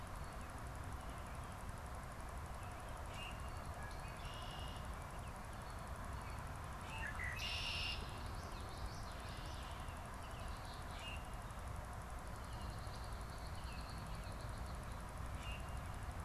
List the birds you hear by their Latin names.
Quiscalus quiscula, Agelaius phoeniceus, Geothlypis trichas